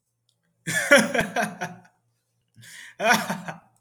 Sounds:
Laughter